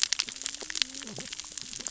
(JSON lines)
{"label": "biophony, cascading saw", "recorder": "SoundTrap 600 or HydroMoth"}